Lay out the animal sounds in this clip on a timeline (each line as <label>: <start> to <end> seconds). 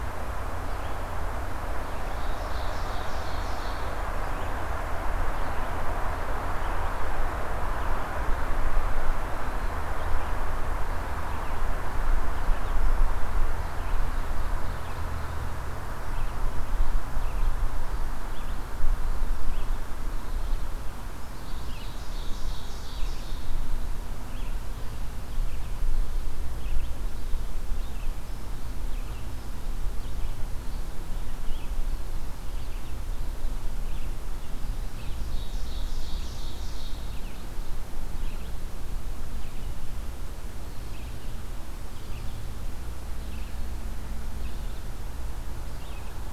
Red-eyed Vireo (Vireo olivaceus): 0.4 to 46.3 seconds
Ovenbird (Seiurus aurocapilla): 1.9 to 4.1 seconds
Ovenbird (Seiurus aurocapilla): 13.8 to 15.6 seconds
Pine Warbler (Setophaga pinus): 21.2 to 24.0 seconds
Ovenbird (Seiurus aurocapilla): 35.0 to 37.5 seconds